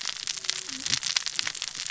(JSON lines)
{"label": "biophony, cascading saw", "recorder": "SoundTrap 600 or HydroMoth"}